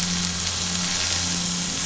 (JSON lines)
{"label": "anthrophony, boat engine", "recorder": "SoundTrap 500"}